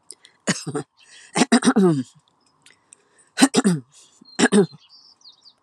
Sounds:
Throat clearing